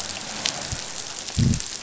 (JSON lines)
{"label": "biophony", "recorder": "SoundTrap 500"}